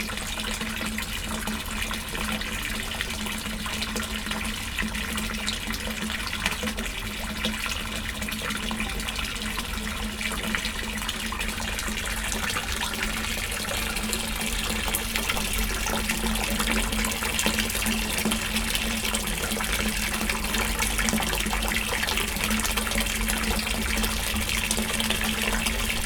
Is a liquid being poured?
yes